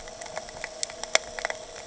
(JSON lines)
{"label": "anthrophony, boat engine", "recorder": "HydroMoth"}